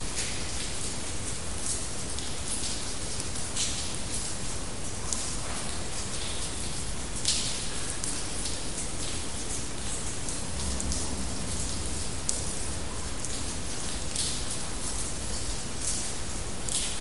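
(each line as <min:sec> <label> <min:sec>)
0:00.0 Raindrops fall repeatedly in a hollow underground space. 0:17.0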